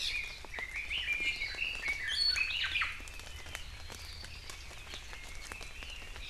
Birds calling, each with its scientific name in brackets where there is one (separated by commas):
Iiwi (Drepanis coccinea), Omao (Myadestes obscurus), Red-billed Leiothrix (Leiothrix lutea)